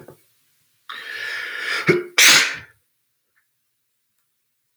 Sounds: Sneeze